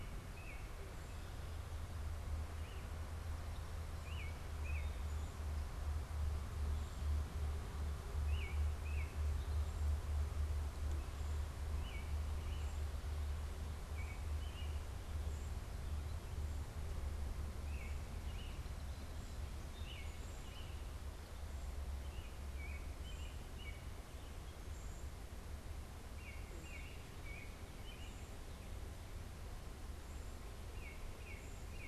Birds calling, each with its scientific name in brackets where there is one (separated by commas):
American Robin (Turdus migratorius), unidentified bird